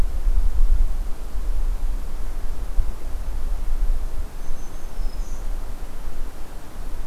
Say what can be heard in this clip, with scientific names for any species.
Setophaga virens